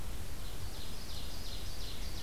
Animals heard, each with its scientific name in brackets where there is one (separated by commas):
Dark-eyed Junco (Junco hyemalis), Ovenbird (Seiurus aurocapilla)